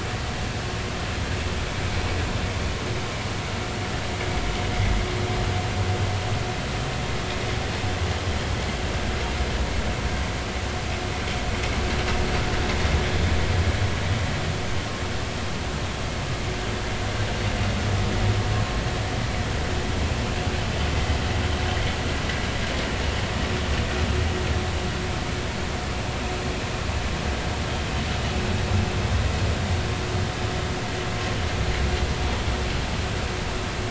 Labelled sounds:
20.9	21.2	vessel noise, 1.9 to 2.1 kHz

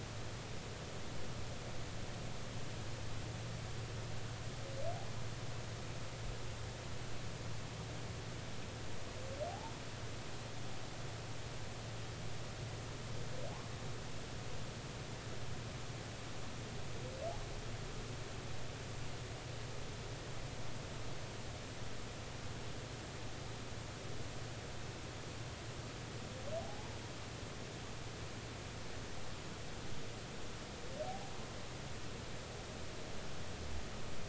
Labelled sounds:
9.5	9.7	humpback whale, 0.80 to 0.96 kHz
26.6	27.0	humpback whale, 0.80 to 0.99 kHz
31.0	31.3	humpback whale, 0.80 to 0.86 kHz

